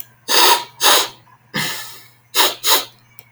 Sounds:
Sniff